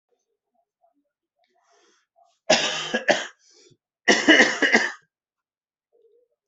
{"expert_labels": [{"quality": "ok", "cough_type": "dry", "dyspnea": true, "wheezing": false, "stridor": false, "choking": false, "congestion": false, "nothing": false, "diagnosis": "COVID-19", "severity": "mild"}], "age": 45, "gender": "male", "respiratory_condition": false, "fever_muscle_pain": true, "status": "healthy"}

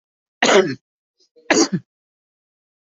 {"expert_labels": [{"quality": "poor", "cough_type": "unknown", "dyspnea": false, "wheezing": false, "stridor": false, "choking": false, "congestion": false, "nothing": true, "diagnosis": "healthy cough", "severity": "mild"}], "gender": "female", "respiratory_condition": true, "fever_muscle_pain": false, "status": "symptomatic"}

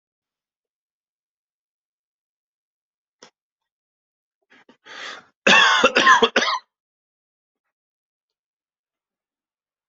{"expert_labels": [{"quality": "ok", "cough_type": "dry", "dyspnea": false, "wheezing": false, "stridor": false, "choking": false, "congestion": false, "nothing": true, "diagnosis": "COVID-19", "severity": "mild"}], "age": 39, "gender": "male", "respiratory_condition": false, "fever_muscle_pain": false, "status": "symptomatic"}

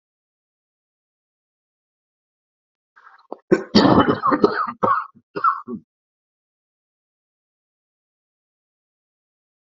{"expert_labels": [{"quality": "ok", "cough_type": "dry", "dyspnea": false, "wheezing": false, "stridor": false, "choking": false, "congestion": false, "nothing": true, "diagnosis": "upper respiratory tract infection", "severity": "unknown"}], "age": 38, "gender": "male", "respiratory_condition": false, "fever_muscle_pain": false, "status": "symptomatic"}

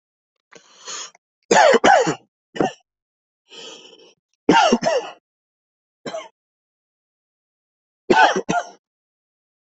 {"expert_labels": [{"quality": "good", "cough_type": "dry", "dyspnea": false, "wheezing": true, "stridor": false, "choking": false, "congestion": false, "nothing": false, "diagnosis": "lower respiratory tract infection", "severity": "mild"}], "age": 24, "gender": "male", "respiratory_condition": false, "fever_muscle_pain": false, "status": "COVID-19"}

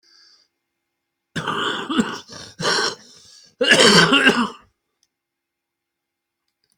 {"expert_labels": [{"quality": "ok", "cough_type": "wet", "dyspnea": false, "wheezing": false, "stridor": false, "choking": false, "congestion": true, "nothing": false, "diagnosis": "lower respiratory tract infection", "severity": "severe"}], "age": 65, "gender": "male", "respiratory_condition": true, "fever_muscle_pain": false, "status": "symptomatic"}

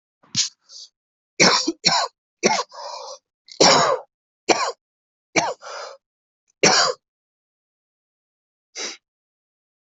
{"expert_labels": [{"quality": "good", "cough_type": "dry", "dyspnea": false, "wheezing": false, "stridor": false, "choking": false, "congestion": true, "nothing": false, "diagnosis": "upper respiratory tract infection", "severity": "mild"}], "age": 34, "gender": "male", "respiratory_condition": false, "fever_muscle_pain": false, "status": "symptomatic"}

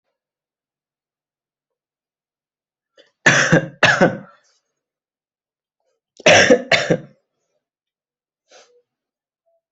{"expert_labels": [{"quality": "good", "cough_type": "dry", "dyspnea": false, "wheezing": false, "stridor": false, "choking": false, "congestion": false, "nothing": true, "diagnosis": "COVID-19", "severity": "mild"}], "age": 19, "gender": "male", "respiratory_condition": false, "fever_muscle_pain": false, "status": "healthy"}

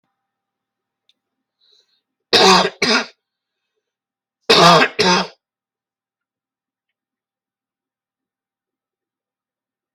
{"expert_labels": [{"quality": "good", "cough_type": "wet", "dyspnea": false, "wheezing": false, "stridor": false, "choking": false, "congestion": false, "nothing": true, "diagnosis": "healthy cough", "severity": "pseudocough/healthy cough"}], "age": 44, "gender": "male", "respiratory_condition": false, "fever_muscle_pain": false, "status": "symptomatic"}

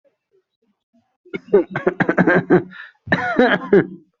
{"expert_labels": [{"quality": "good", "cough_type": "dry", "dyspnea": false, "wheezing": false, "stridor": false, "choking": false, "congestion": false, "nothing": true, "diagnosis": "obstructive lung disease", "severity": "severe"}], "gender": "female", "respiratory_condition": false, "fever_muscle_pain": false, "status": "COVID-19"}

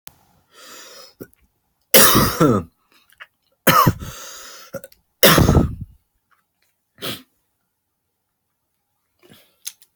{"expert_labels": [{"quality": "ok", "cough_type": "dry", "dyspnea": false, "wheezing": false, "stridor": false, "choking": false, "congestion": true, "nothing": false, "diagnosis": "upper respiratory tract infection", "severity": "mild"}], "age": 25, "gender": "male", "respiratory_condition": false, "fever_muscle_pain": true, "status": "healthy"}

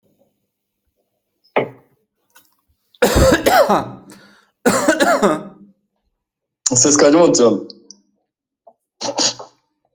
{"expert_labels": [{"quality": "ok", "cough_type": "unknown", "dyspnea": false, "wheezing": false, "stridor": false, "choking": false, "congestion": false, "nothing": true, "diagnosis": "healthy cough", "severity": "pseudocough/healthy cough"}, {"quality": "ok", "cough_type": "dry", "dyspnea": false, "wheezing": false, "stridor": false, "choking": false, "congestion": false, "nothing": true, "diagnosis": "COVID-19", "severity": "unknown"}, {"quality": "good", "cough_type": "wet", "dyspnea": false, "wheezing": false, "stridor": false, "choking": false, "congestion": false, "nothing": true, "diagnosis": "healthy cough", "severity": "pseudocough/healthy cough"}, {"quality": "good", "cough_type": "dry", "dyspnea": false, "wheezing": false, "stridor": false, "choking": false, "congestion": false, "nothing": true, "diagnosis": "healthy cough", "severity": "pseudocough/healthy cough"}], "age": 29, "gender": "male", "respiratory_condition": false, "fever_muscle_pain": false, "status": "healthy"}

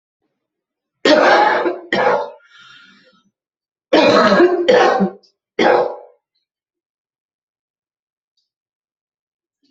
{"expert_labels": [{"quality": "ok", "cough_type": "dry", "dyspnea": false, "wheezing": false, "stridor": false, "choking": false, "congestion": false, "nothing": true, "diagnosis": "COVID-19", "severity": "mild"}], "age": 53, "gender": "female", "respiratory_condition": false, "fever_muscle_pain": false, "status": "symptomatic"}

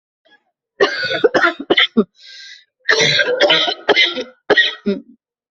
{"expert_labels": [{"quality": "ok", "cough_type": "dry", "dyspnea": false, "wheezing": false, "stridor": false, "choking": false, "congestion": false, "nothing": true, "diagnosis": "COVID-19", "severity": "severe"}], "age": 29, "gender": "female", "respiratory_condition": true, "fever_muscle_pain": false, "status": "symptomatic"}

